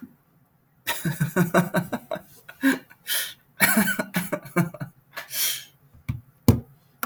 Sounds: Laughter